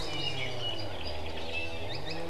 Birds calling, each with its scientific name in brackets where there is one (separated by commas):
Apapane (Himatione sanguinea), Iiwi (Drepanis coccinea)